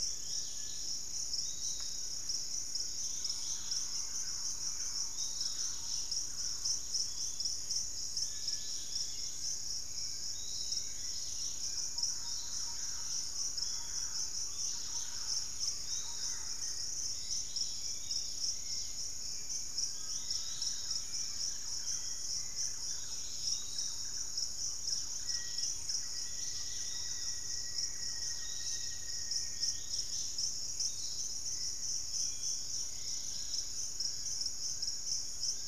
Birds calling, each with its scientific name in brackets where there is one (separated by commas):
Dusky-capped Greenlet (Pachysylvia hypoxantha), Buff-throated Woodcreeper (Xiphorhynchus guttatus), Hauxwell's Thrush (Turdus hauxwelli), Black-faced Antthrush (Formicarius analis), Thrush-like Wren (Campylorhynchus turdinus), Cinereous Tinamou (Crypturellus cinereus), Fasciated Antshrike (Cymbilaimus lineatus), Pygmy Antwren (Myrmotherula brachyura), Undulated Tinamou (Crypturellus undulatus), Piratic Flycatcher (Legatus leucophaius)